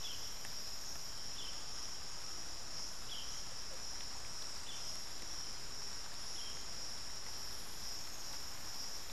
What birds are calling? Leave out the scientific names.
Russet-backed Oropendola